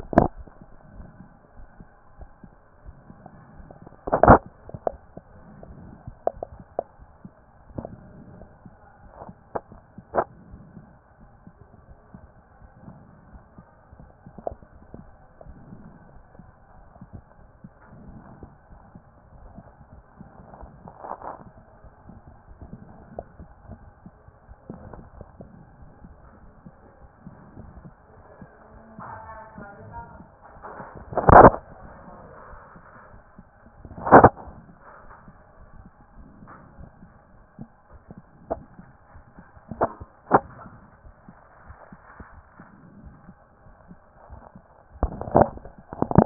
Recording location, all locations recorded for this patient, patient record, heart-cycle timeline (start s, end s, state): aortic valve (AV)
aortic valve (AV)+pulmonary valve (PV)+tricuspid valve (TV)
#Age: Child
#Sex: Male
#Height: 164.0 cm
#Weight: 70.7 kg
#Pregnancy status: False
#Murmur: Absent
#Murmur locations: nan
#Most audible location: nan
#Systolic murmur timing: nan
#Systolic murmur shape: nan
#Systolic murmur grading: nan
#Systolic murmur pitch: nan
#Systolic murmur quality: nan
#Diastolic murmur timing: nan
#Diastolic murmur shape: nan
#Diastolic murmur grading: nan
#Diastolic murmur pitch: nan
#Diastolic murmur quality: nan
#Outcome: Normal
#Campaign: 2014 screening campaign
0.00	11.88	unannotated
11.88	11.96	S1
11.96	12.14	systole
12.14	12.22	S2
12.22	12.64	diastole
12.64	12.72	S1
12.72	12.88	systole
12.88	12.96	S2
12.96	13.32	diastole
13.32	13.42	S1
13.42	13.58	systole
13.58	13.66	S2
13.66	13.98	diastole
13.98	14.08	S1
14.08	14.26	systole
14.26	14.34	S2
14.34	14.50	diastole
14.50	14.60	S1
14.60	14.74	systole
14.74	14.80	S2
14.80	14.96	diastole
14.96	46.26	unannotated